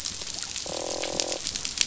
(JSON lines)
{"label": "biophony, croak", "recorder": "SoundTrap 500"}